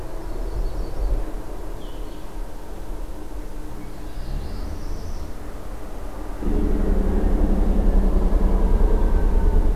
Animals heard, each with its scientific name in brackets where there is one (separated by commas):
Yellow-rumped Warbler (Setophaga coronata), Blue-headed Vireo (Vireo solitarius), Northern Parula (Setophaga americana)